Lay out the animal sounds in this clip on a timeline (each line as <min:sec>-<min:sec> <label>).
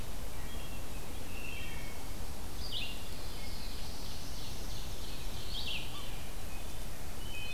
0:00.0-0:07.5 Red-eyed Vireo (Vireo olivaceus)
0:00.2-0:00.9 Wood Thrush (Hylocichla mustelina)
0:01.3-0:02.2 Wood Thrush (Hylocichla mustelina)
0:03.0-0:04.8 Black-throated Blue Warbler (Setophaga caerulescens)
0:03.0-0:05.6 Ovenbird (Seiurus aurocapilla)